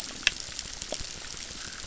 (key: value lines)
label: biophony, crackle
recorder: SoundTrap 600